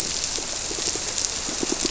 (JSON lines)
{"label": "biophony, squirrelfish (Holocentrus)", "recorder": "SoundTrap 300"}